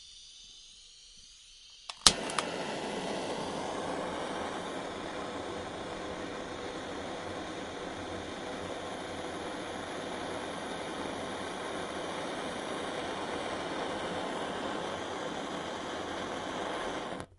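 A small gas burner clicks on. 1.8 - 2.5
A small gas burner is burning. 2.6 - 17.4

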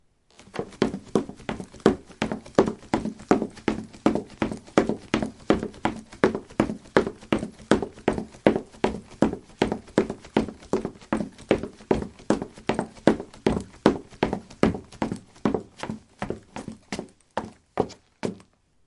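Footsteps on a wooden floor, rhythmically. 0.5 - 18.3

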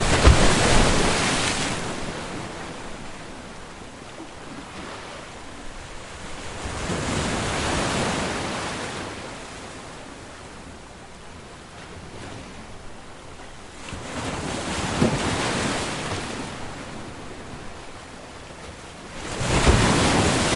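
The sound of a wave of water. 0.0 - 3.0
Water splashing. 2.7 - 6.6
The sound of a wave of water. 6.5 - 9.3
Water splashing. 9.3 - 13.9
The sound of a wave of water. 13.8 - 16.5
Water splashing. 16.4 - 19.2
The sound of a wave of water. 19.2 - 20.6

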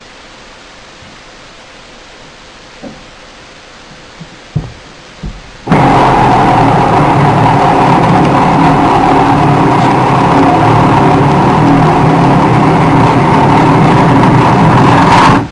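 A steady mid-volume white noise with a continuous hiss. 0.0 - 5.6
A loud, continuous high-pitched drilling sound. 5.6 - 15.5

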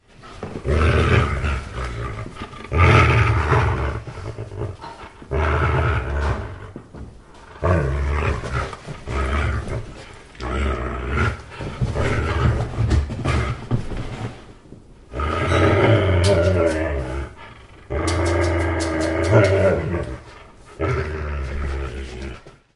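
A wolf growls intensely nearby with a deep, rumbling sound. 0.5 - 22.5
A wolf scrapes its paws against the ground while growling intensely nearby. 8.8 - 11.2
A wolf scrapes its paws against the ground while growling intensely nearby. 12.7 - 15.1
A wolf makes a strange noise that sounds like something moving indoors. 18.1 - 20.2

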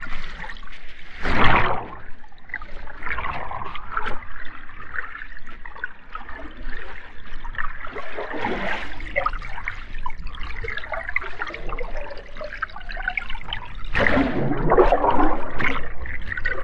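Underwater waves surge back and forth, creating a continuous rhythmic current. 0.0 - 16.6
Occasional bubbles rise and burst, creating soft gurgling noises in the underwater soundscape. 0.9 - 2.4
Occasional bubbles rise and burst, creating soft gurgling noises in the underwater soundscape. 13.7 - 16.4

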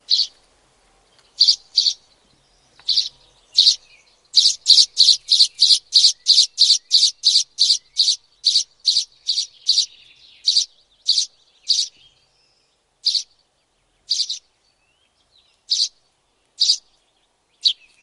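A bird chirps once with a high pitch. 0.1 - 0.3
A bird chirps rhythmically with a high pitch. 1.4 - 2.0
A bird chirps once with a high pitch. 2.8 - 3.8
A bird chirps rhythmically with a high pitch. 4.3 - 11.9
A bird chirps once with a high pitch. 13.0 - 13.3
A bird chirps once with a high pitch. 14.1 - 14.4
A bird chirps once with a high pitch. 15.7 - 15.9
A bird chirps once with a high pitch. 16.6 - 16.8
A bird chirps once with a high pitch. 17.6 - 17.8

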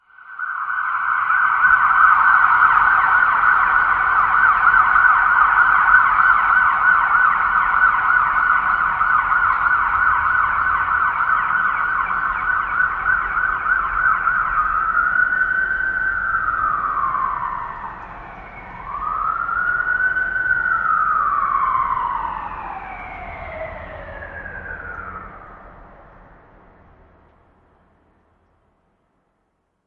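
A loud police siren recurs and fades into the distance. 0.1 - 25.8

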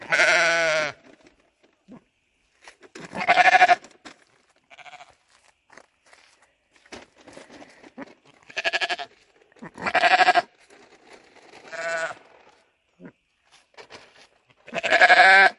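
Sheep bleating. 0.0 - 1.0
Sheep bleating. 3.0 - 3.8
Footsteps in the distance. 3.9 - 8.3
Sheep bleating. 8.4 - 9.1
Sheep bleating. 9.7 - 10.6
A distant soft sheep bleating. 11.6 - 12.3
Sheep bleating. 14.6 - 15.6

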